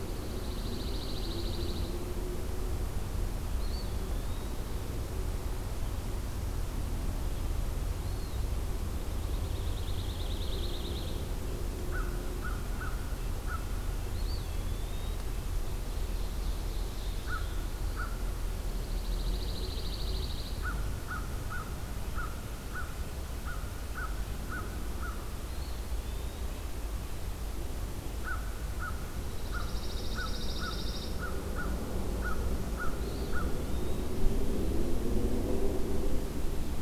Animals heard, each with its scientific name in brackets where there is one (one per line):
Black-throated Blue Warbler (Setophaga caerulescens)
Ovenbird (Seiurus aurocapilla)
American Crow (Corvus brachyrhynchos)
Eastern Wood-Pewee (Contopus virens)
Pine Warbler (Setophaga pinus)